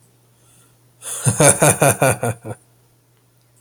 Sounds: Laughter